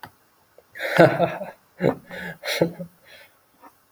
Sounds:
Laughter